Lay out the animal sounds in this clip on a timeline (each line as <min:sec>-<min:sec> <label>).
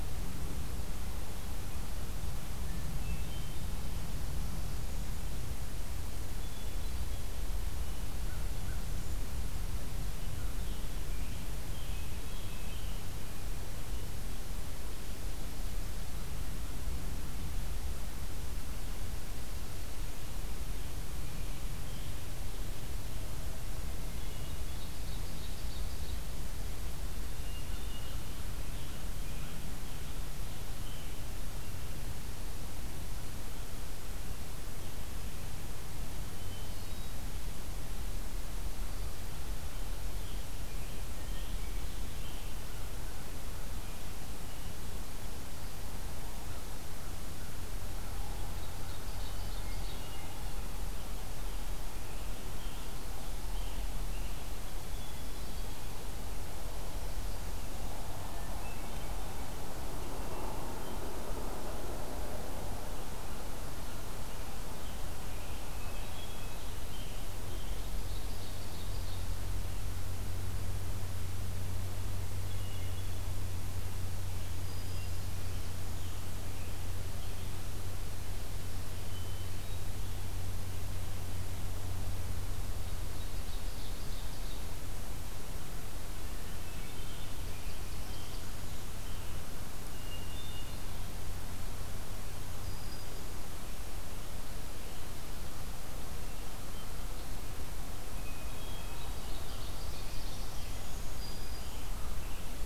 0:02.6-0:03.9 Hermit Thrush (Catharus guttatus)
0:06.3-0:07.3 Hermit Thrush (Catharus guttatus)
0:08.0-0:08.9 American Crow (Corvus brachyrhynchos)
0:09.9-0:13.1 Scarlet Tanager (Piranga olivacea)
0:11.8-0:12.9 Hermit Thrush (Catharus guttatus)
0:20.4-0:22.3 Scarlet Tanager (Piranga olivacea)
0:24.0-0:24.8 Hermit Thrush (Catharus guttatus)
0:24.7-0:26.2 Ovenbird (Seiurus aurocapilla)
0:27.3-0:28.3 Hermit Thrush (Catharus guttatus)
0:27.9-0:31.2 Scarlet Tanager (Piranga olivacea)
0:29.1-0:29.6 American Crow (Corvus brachyrhynchos)
0:36.2-0:37.3 Hermit Thrush (Catharus guttatus)
0:39.9-0:43.0 Scarlet Tanager (Piranga olivacea)
0:41.0-0:42.0 Hermit Thrush (Catharus guttatus)
0:48.2-0:50.1 Ovenbird (Seiurus aurocapilla)
0:49.2-0:50.5 Hermit Thrush (Catharus guttatus)
0:51.2-0:54.5 Scarlet Tanager (Piranga olivacea)
0:54.7-0:55.9 Hermit Thrush (Catharus guttatus)
0:58.2-0:59.5 Hermit Thrush (Catharus guttatus)
1:00.0-1:01.4 Hermit Thrush (Catharus guttatus)
1:04.6-1:07.8 Scarlet Tanager (Piranga olivacea)
1:05.7-1:06.6 Hermit Thrush (Catharus guttatus)
1:07.8-1:09.3 Ovenbird (Seiurus aurocapilla)
1:12.2-1:13.2 Hermit Thrush (Catharus guttatus)
1:14.1-1:17.3 Scarlet Tanager (Piranga olivacea)
1:14.2-1:15.4 Black-throated Green Warbler (Setophaga virens)
1:18.9-1:19.9 Hermit Thrush (Catharus guttatus)
1:23.0-1:24.6 Ovenbird (Seiurus aurocapilla)
1:26.3-1:27.4 Hermit Thrush (Catharus guttatus)
1:26.5-1:29.5 Scarlet Tanager (Piranga olivacea)
1:27.3-1:28.5 Ovenbird (Seiurus aurocapilla)
1:29.8-1:31.1 Hermit Thrush (Catharus guttatus)
1:31.9-1:33.4 Black-throated Green Warbler (Setophaga virens)
1:38.2-1:39.3 Hermit Thrush (Catharus guttatus)
1:38.8-1:40.6 Ovenbird (Seiurus aurocapilla)
1:39.6-1:41.2 Black-throated Blue Warbler (Setophaga caerulescens)
1:40.2-1:42.7 Scarlet Tanager (Piranga olivacea)
1:40.4-1:41.9 Black-throated Green Warbler (Setophaga virens)